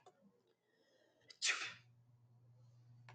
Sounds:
Sneeze